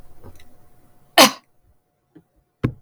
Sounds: Cough